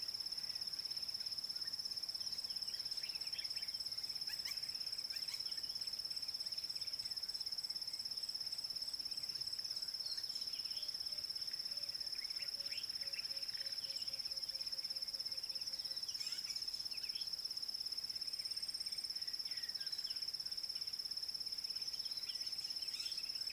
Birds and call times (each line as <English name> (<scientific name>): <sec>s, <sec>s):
White-rumped Shrike (Eurocephalus ruppelli): 4.5s